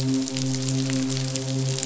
{"label": "biophony, midshipman", "recorder": "SoundTrap 500"}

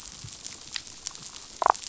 {"label": "biophony, damselfish", "recorder": "SoundTrap 500"}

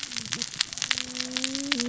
{"label": "biophony, cascading saw", "recorder": "SoundTrap 600 or HydroMoth"}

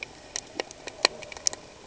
{"label": "ambient", "recorder": "HydroMoth"}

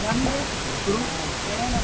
{"label": "ambient", "recorder": "HydroMoth"}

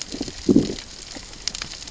{"label": "biophony, growl", "recorder": "SoundTrap 600 or HydroMoth"}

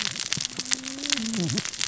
{"label": "biophony, cascading saw", "recorder": "SoundTrap 600 or HydroMoth"}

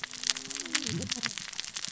{"label": "biophony, cascading saw", "recorder": "SoundTrap 600 or HydroMoth"}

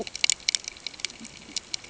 {"label": "ambient", "recorder": "HydroMoth"}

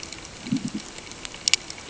{"label": "ambient", "recorder": "HydroMoth"}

